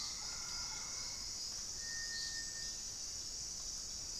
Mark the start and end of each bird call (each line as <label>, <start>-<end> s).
Mealy Parrot (Amazona farinosa), 0.0-1.1 s
Plumbeous Antbird (Myrmelastes hyperythrus), 0.0-1.4 s
Cinereous Tinamou (Crypturellus cinereus), 0.0-4.2 s